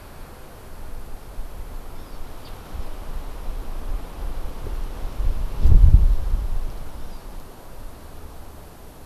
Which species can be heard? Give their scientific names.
Chlorodrepanis virens